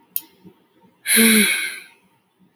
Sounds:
Sigh